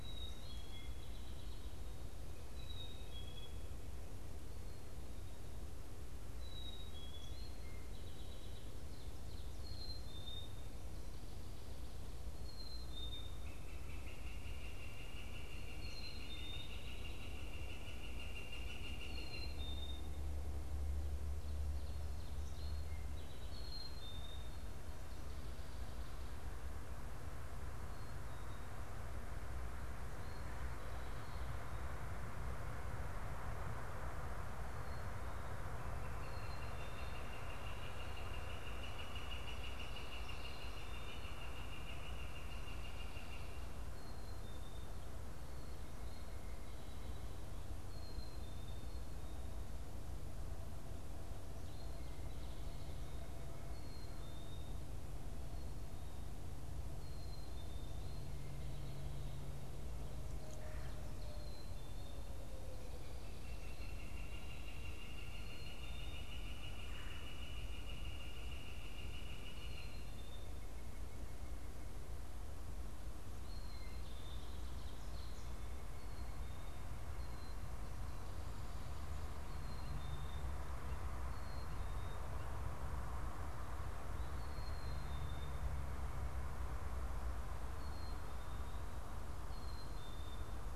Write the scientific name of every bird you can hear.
Poecile atricapillus, Colaptes auratus, Seiurus aurocapilla, Pipilo erythrophthalmus, Melanerpes carolinus